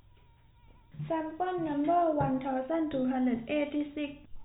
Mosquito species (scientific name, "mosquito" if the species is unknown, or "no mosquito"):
no mosquito